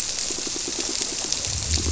{"label": "biophony", "recorder": "SoundTrap 300"}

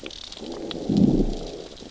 {"label": "biophony, growl", "recorder": "SoundTrap 600 or HydroMoth"}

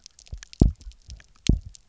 {"label": "biophony, double pulse", "recorder": "SoundTrap 300"}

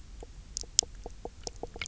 {"label": "biophony, knock croak", "recorder": "SoundTrap 300"}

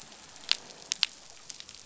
{"label": "biophony, croak", "recorder": "SoundTrap 500"}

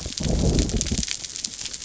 {"label": "biophony", "recorder": "SoundTrap 300"}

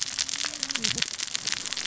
{"label": "biophony, cascading saw", "recorder": "SoundTrap 600 or HydroMoth"}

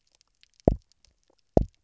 {"label": "biophony, double pulse", "recorder": "SoundTrap 300"}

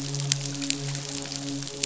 {"label": "biophony, midshipman", "recorder": "SoundTrap 500"}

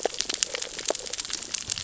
{"label": "biophony, cascading saw", "recorder": "SoundTrap 600 or HydroMoth"}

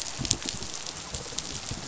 {"label": "biophony, rattle response", "recorder": "SoundTrap 500"}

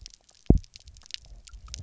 {"label": "biophony, double pulse", "recorder": "SoundTrap 300"}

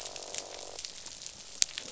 {"label": "biophony, croak", "recorder": "SoundTrap 500"}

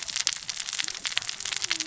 {"label": "biophony, cascading saw", "recorder": "SoundTrap 600 or HydroMoth"}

